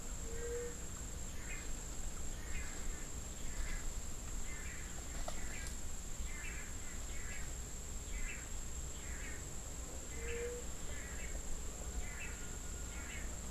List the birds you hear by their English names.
White-tipped Dove, Long-tailed Manakin